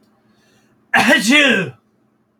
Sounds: Sneeze